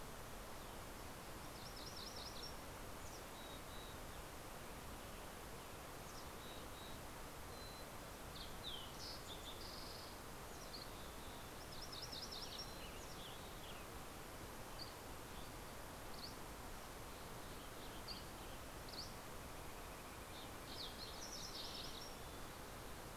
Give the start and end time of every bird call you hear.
[1.00, 3.10] MacGillivray's Warbler (Geothlypis tolmiei)
[2.60, 4.30] Mountain Chickadee (Poecile gambeli)
[5.80, 8.30] Mountain Chickadee (Poecile gambeli)
[8.00, 10.20] Fox Sparrow (Passerella iliaca)
[10.10, 11.80] Mountain Chickadee (Poecile gambeli)
[11.10, 13.20] MacGillivray's Warbler (Geothlypis tolmiei)
[12.10, 14.30] Western Tanager (Piranga ludoviciana)
[14.50, 19.70] Dusky Flycatcher (Empidonax oberholseri)
[16.90, 18.80] Western Tanager (Piranga ludoviciana)
[19.50, 22.80] Fox Sparrow (Passerella iliaca)
[20.40, 22.20] MacGillivray's Warbler (Geothlypis tolmiei)

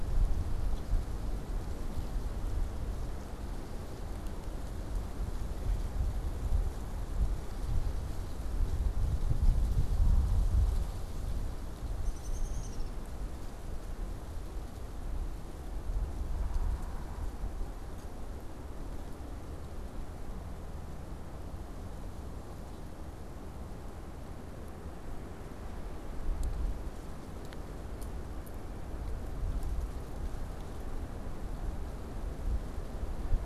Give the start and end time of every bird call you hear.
[11.88, 13.18] Downy Woodpecker (Dryobates pubescens)

